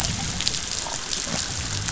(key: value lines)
label: biophony
recorder: SoundTrap 500